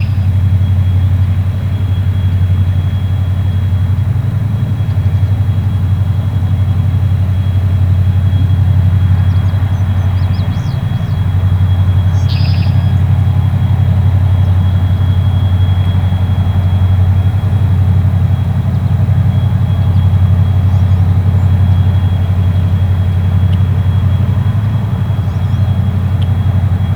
Is there a live animal?
yes